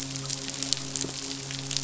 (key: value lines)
label: biophony, midshipman
recorder: SoundTrap 500